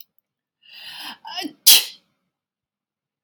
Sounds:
Sneeze